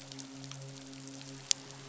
{"label": "biophony, midshipman", "recorder": "SoundTrap 500"}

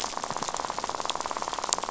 {"label": "biophony, rattle", "recorder": "SoundTrap 500"}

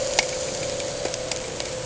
{"label": "anthrophony, boat engine", "recorder": "HydroMoth"}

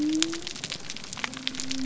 {"label": "biophony", "recorder": "SoundTrap 300"}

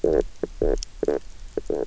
{"label": "biophony, knock croak", "recorder": "SoundTrap 300"}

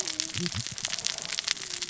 {"label": "biophony, cascading saw", "recorder": "SoundTrap 600 or HydroMoth"}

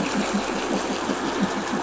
{"label": "anthrophony, boat engine", "recorder": "SoundTrap 500"}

